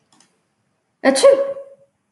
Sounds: Sneeze